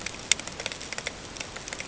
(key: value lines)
label: ambient
recorder: HydroMoth